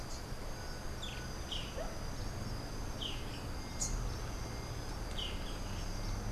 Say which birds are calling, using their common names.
Boat-billed Flycatcher, Rufous-capped Warbler